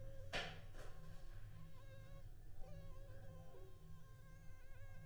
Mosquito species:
Anopheles funestus s.s.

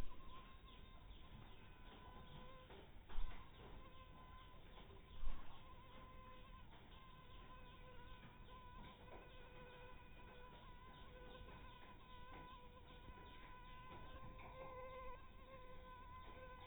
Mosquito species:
mosquito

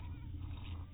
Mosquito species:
mosquito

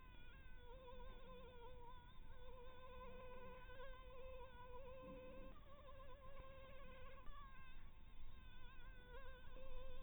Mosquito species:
Anopheles minimus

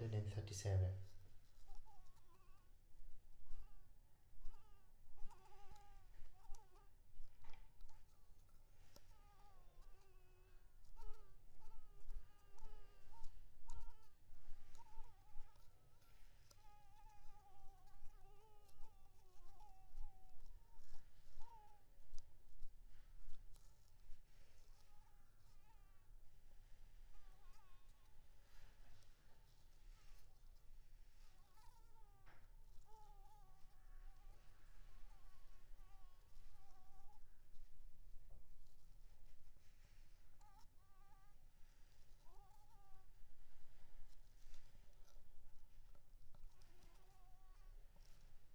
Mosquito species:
Anopheles maculipalpis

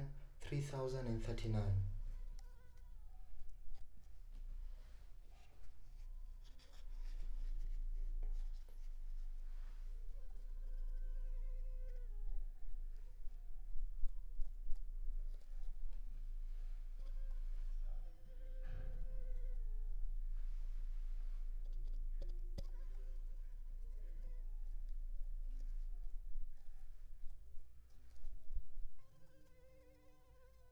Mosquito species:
Culex pipiens complex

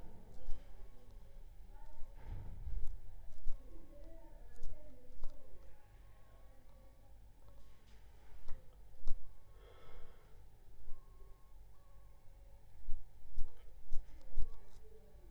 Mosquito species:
Aedes aegypti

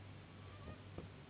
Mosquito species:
Anopheles gambiae s.s.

